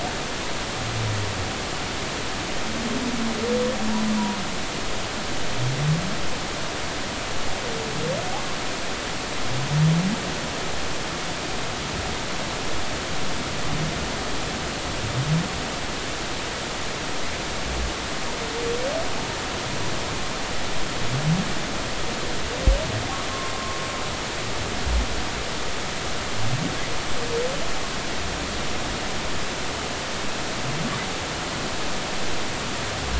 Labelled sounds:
23.5	23.8	humpback whale, 1.0 to 1.1 kHz

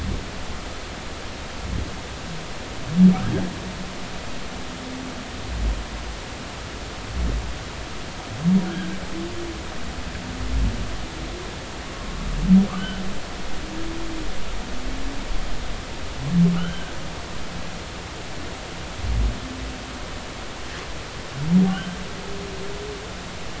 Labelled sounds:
8.7	8.9	humpback whale, 1.3 to 1.7 kHz
12.8	13.0	humpback whale, 2.9 to 3.1 kHz
16.5	16.9	humpback whale, 1.2 to 3.2 kHz
21.7	22.0	humpback whale, 1.4 to 1.6 kHz

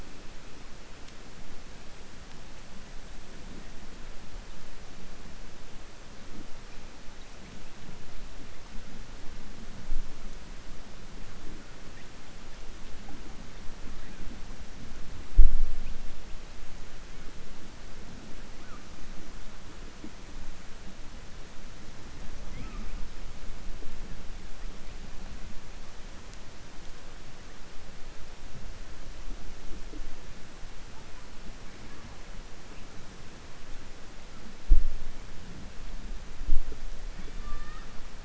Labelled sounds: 37.1	37.9	killer whale, southern resident, 1.2 to 3.0 kHz

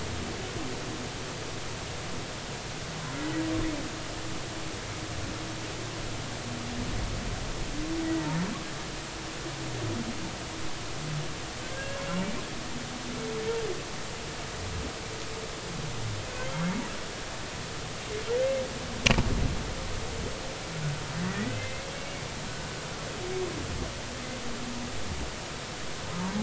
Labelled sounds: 11.7	12.0	humpback whale, 1.5 to 1.7 kHz
21.2	22.3	humpback whale, 1.8 to 2.4 kHz

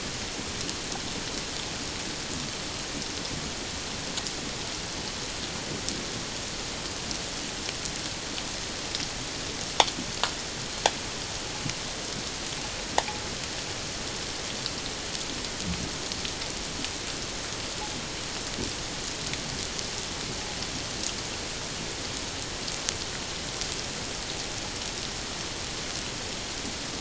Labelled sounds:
13.0	13.2	click-like sound, 0.78 to 1.0 kHz

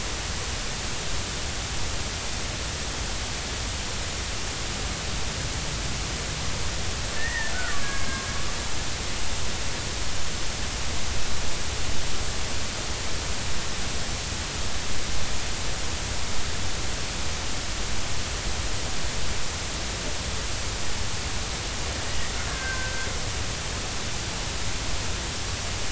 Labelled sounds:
7.1	8.3	killer whale, Bigg's (transient), 1.0 to 2.2 kHz
22.5	23.1	killer whale, Bigg's (transient), 1.5 to 1.7 kHz

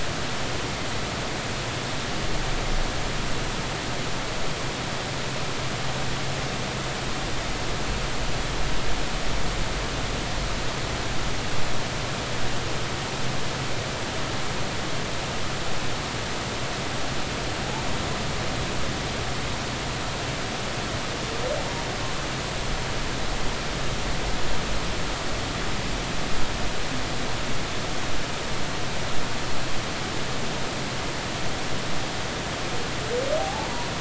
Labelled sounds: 33.4	33.9	humpback whale, 0.80 to 1.0 kHz

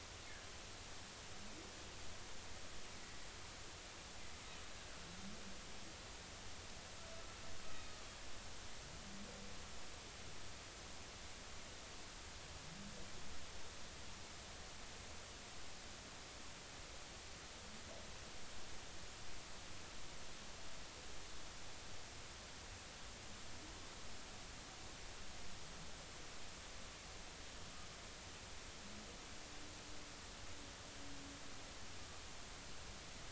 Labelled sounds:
7.7	7.9	humpback whale, 2.4 to 2.6 kHz

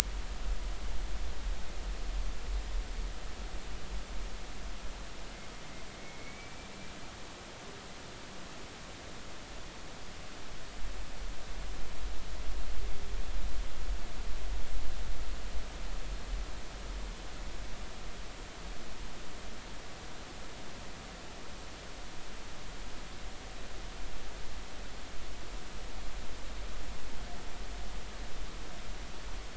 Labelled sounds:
6.0	6.6	humpback whale, 2.1 to 2.4 kHz

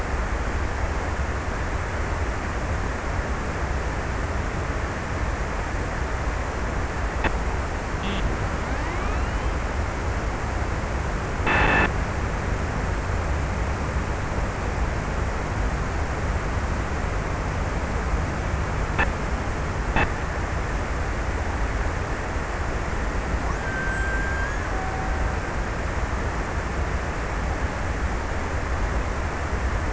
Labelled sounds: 23.0	25.8	killer whale, Bigg's (transient), 0.40 to 2.0 kHz

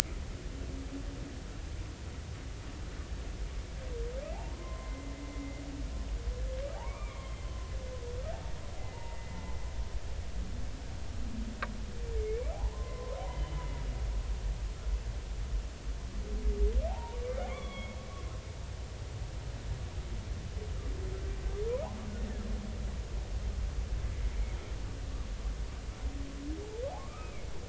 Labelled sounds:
4.3	5.1	humpback whale, 0.80 to 2.1 kHz
6.8	7.4	humpback whale, 0.80 to 3.3 kHz
8.8	9.4	humpback whale, 0.86 to 2.1 kHz
12.2	13.6	humpback whale, 0.93 to 3.1 kHz
16.9	18.0	humpback whale, 0.80 to 3.5 kHz
27.0	27.3	humpback whale, 0.99 to 1.4 kHz

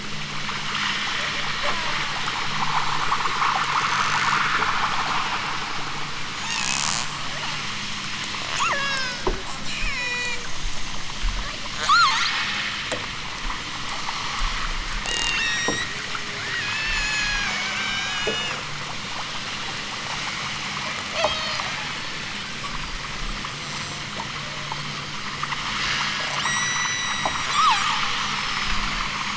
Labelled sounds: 1.6	2.3	killer whale, southern Alaska resident, 0.60 to 1.8 kHz
5.0	5.8	killer whale, southern Alaska resident, 1.7 to 3.6 kHz
8.6	9.3	killer whale, southern Alaska resident, 0.23 to 8.0 kHz
9.7	10.5	killer whale, southern Alaska resident, 0.32 to 8.0 kHz
11.7	12.5	killer whale, southern Alaska resident, 0.46 to 8.0 kHz
14.9	16.0	killer whale, southern Alaska resident, 1.4 to 8.0 kHz
16.4	18.6	killer whale, southern Alaska resident, 1.1 to 8.0 kHz
21.0	21.7	killer whale, southern Alaska resident, 0.46 to 8.0 kHz
26.4	29.3	killer whale, southern Alaska resident, 0.46 to 8.0 kHz

